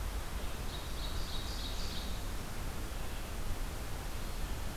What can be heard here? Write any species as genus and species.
Seiurus aurocapilla